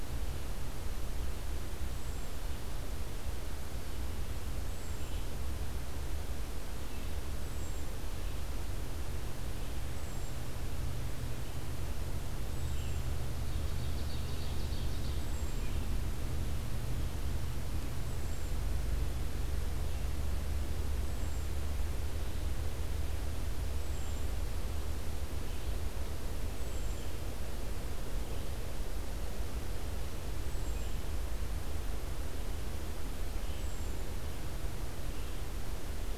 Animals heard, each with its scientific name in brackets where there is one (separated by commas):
Ovenbird (Seiurus aurocapilla), Hermit Thrush (Catharus guttatus), Red-eyed Vireo (Vireo olivaceus)